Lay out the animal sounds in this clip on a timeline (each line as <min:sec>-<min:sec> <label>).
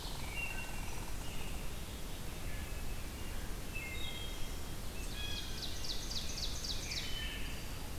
0:00.0-0:01.2 Red Squirrel (Tamiasciurus hudsonicus)
0:00.3-0:00.9 Wood Thrush (Hylocichla mustelina)
0:00.6-0:02.0 American Robin (Turdus migratorius)
0:02.3-0:03.0 Wood Thrush (Hylocichla mustelina)
0:03.7-0:04.4 Wood Thrush (Hylocichla mustelina)
0:04.7-0:07.1 Ovenbird (Seiurus aurocapilla)
0:05.0-0:05.7 Blue Jay (Cyanocitta cristata)
0:06.8-0:07.5 Wood Thrush (Hylocichla mustelina)